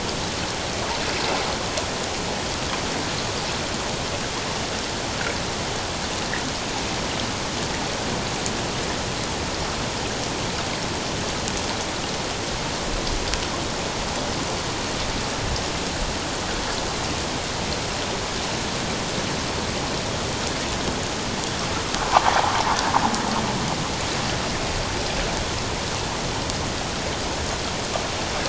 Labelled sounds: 22.0	22.3	water noise, 0.78 to 1.2 kHz

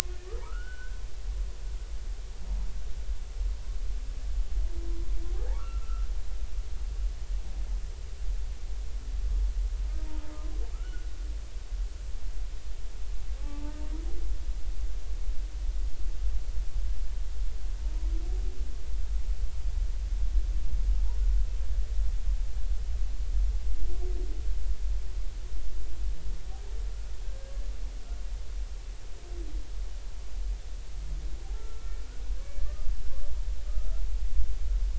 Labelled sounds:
0.4	1.0	humpback whale, 0.86 to 3.0 kHz
5.5	6.1	humpback whale, 1.1 to 1.5 kHz
10.7	11.1	humpback whale, 1.2 to 1.5 kHz
13.4	13.8	humpback whale, 0.80 to 1.2 kHz
27.2	27.7	humpback whale, 1.5 to 1.8 kHz
31.4	32.0	humpback whale, 0.80 to 1.4 kHz
32.6	32.9	humpback whale, 1.1 to 1.3 kHz
33.7	34.0	humpback whale, 1.2 to 1.4 kHz

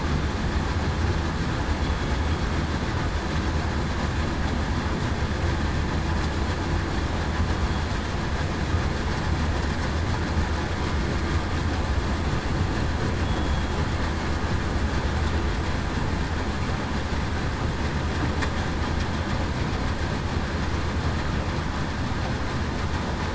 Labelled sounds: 13.2	13.6	killer whale, southern resident, 3.3 to 3.4 kHz

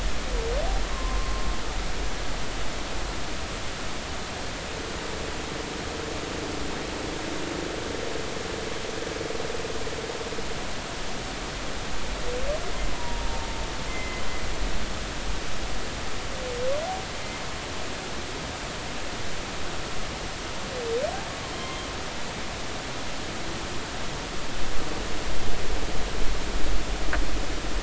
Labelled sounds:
0.9	1.4	humpback whale, 0.96 to 1.2 kHz
12.9	14.2	humpback whale, 0.86 to 2.1 kHz
21.6	21.8	humpback whale, 2.1 to 2.2 kHz

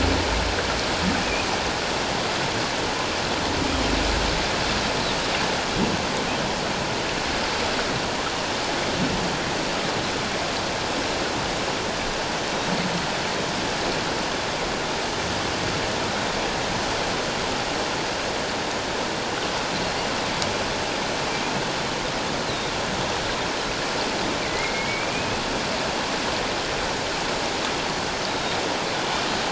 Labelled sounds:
22.5	22.7	Pacific white-sided dolphin, 3.6 to 4.2 kHz
24.4	25.4	Pacific white-sided dolphin, 1.9 to 2.7 kHz
28.3	28.6	Pacific white-sided dolphin, 3.6 to 3.9 kHz

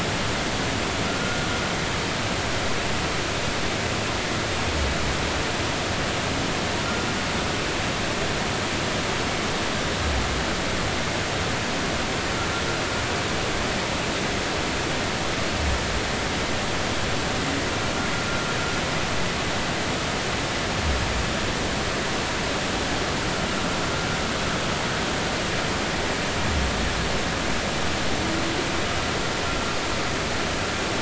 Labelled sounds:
1.2	1.5	humpback whale, 1.3 to 1.5 kHz

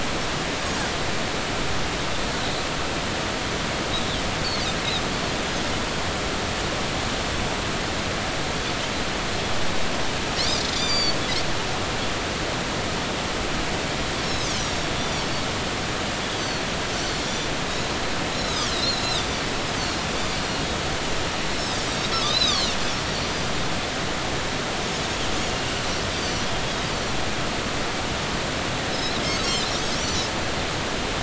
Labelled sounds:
10.4	11.2	Pacific white-sided dolphin, 2.2 to 8.0 kHz
14.2	14.9	Pacific white-sided dolphin, 3.6 to 6.0 kHz
16.4	17.5	Pacific white-sided dolphin, 3.4 to 4.8 kHz
18.3	19.3	Pacific white-sided dolphin, 2.9 to 6.8 kHz
19.8	20.0	Pacific white-sided dolphin, 4.2 to 4.7 kHz
21.6	22.7	Pacific white-sided dolphin, 3.0 to 5.5 kHz
23.2	23.5	Pacific white-sided dolphin, 4.7 to 4.9 kHz
25.5	26.5	Pacific white-sided dolphin, 2.8 to 6.3 kHz
28.9	29.5	Pacific white-sided dolphin, 4.5 to 6.5 kHz
30.0	30.3	Pacific white-sided dolphin, 5.4 to 6.0 kHz

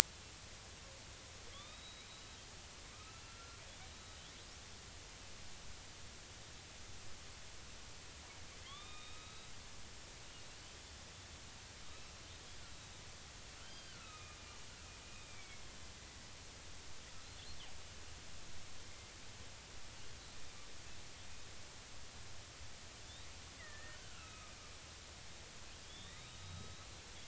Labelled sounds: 1.5	2.4	killer whale, northern resident, 1.1 to 4.0 kHz
3.1	3.6	killer whale, northern resident, 1.3 to 2.8 kHz
3.9	4.2	killer whale, northern resident, 3.8 to 3.9 kHz
8.6	9.5	killer whale, northern resident, 1.0 to 3.9 kHz
11.9	13.0	killer whale, northern resident, 2.5 to 4.0 kHz
13.6	14.4	killer whale, northern resident, 1.2 to 4.9 kHz
15.3	15.7	killer whale, northern resident, 2.1 to 2.4 kHz
18.8	19.1	killer whale, northern resident, 2.0 to 2.2 kHz
23.6	24.5	killer whale, northern resident, 1.2 to 2.9 kHz
25.8	26.9	killer whale, northern resident, 1.8 to 4.1 kHz

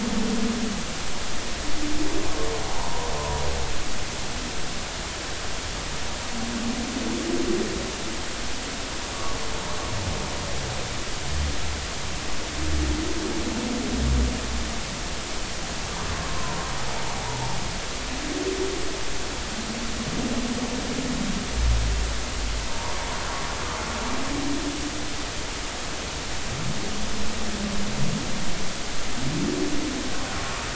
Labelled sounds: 2.7	3.4	humpback whale, 0.80 to 1.1 kHz
22.7	23.0	humpback whale, 0.86 to 1.1 kHz

